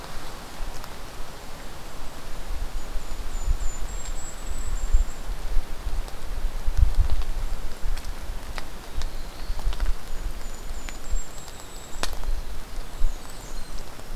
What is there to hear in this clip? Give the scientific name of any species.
Regulus satrapa, Setophaga caerulescens, Troglodytes hiemalis, Setophaga fusca